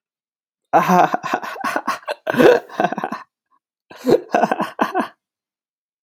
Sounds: Laughter